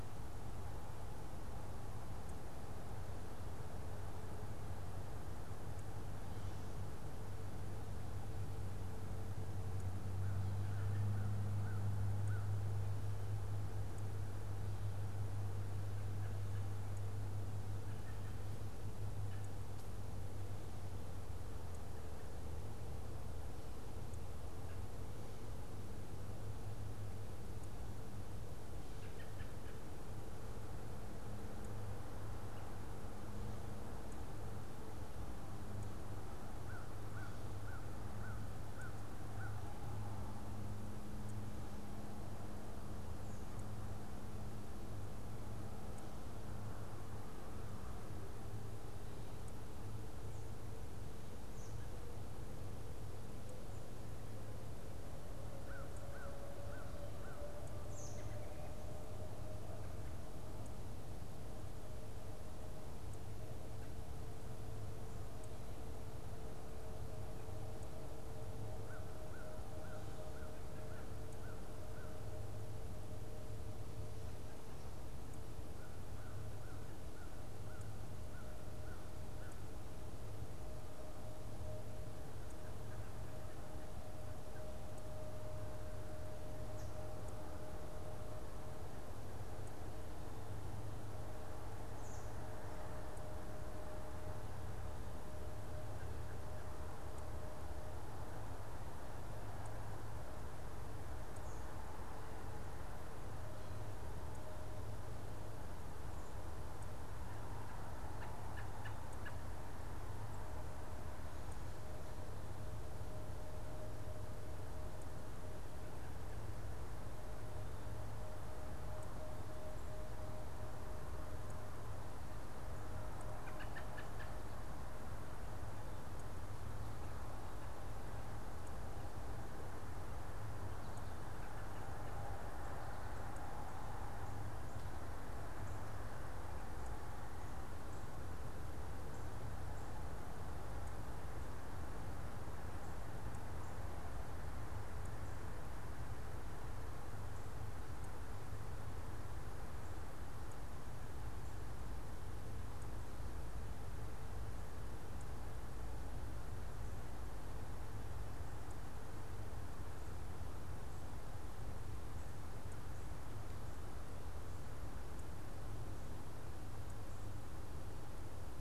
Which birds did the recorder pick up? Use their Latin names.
Corvus brachyrhynchos, Turdus migratorius